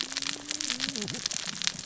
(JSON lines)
{"label": "biophony, cascading saw", "recorder": "SoundTrap 600 or HydroMoth"}